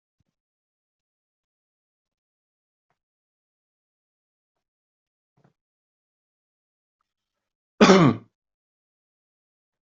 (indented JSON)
{
  "expert_labels": [
    {
      "quality": "ok",
      "cough_type": "unknown",
      "dyspnea": false,
      "wheezing": false,
      "stridor": false,
      "choking": false,
      "congestion": false,
      "nothing": true,
      "diagnosis": "healthy cough",
      "severity": "pseudocough/healthy cough"
    },
    {
      "quality": "good",
      "cough_type": "dry",
      "dyspnea": false,
      "wheezing": false,
      "stridor": false,
      "choking": false,
      "congestion": false,
      "nothing": true,
      "diagnosis": "COVID-19",
      "severity": "mild"
    },
    {
      "quality": "good",
      "cough_type": "unknown",
      "dyspnea": false,
      "wheezing": false,
      "stridor": false,
      "choking": false,
      "congestion": false,
      "nothing": true,
      "diagnosis": "healthy cough",
      "severity": "pseudocough/healthy cough"
    },
    {
      "quality": "good",
      "cough_type": "dry",
      "dyspnea": false,
      "wheezing": false,
      "stridor": false,
      "choking": false,
      "congestion": false,
      "nothing": true,
      "diagnosis": "healthy cough",
      "severity": "pseudocough/healthy cough"
    }
  ]
}